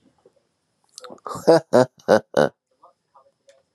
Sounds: Laughter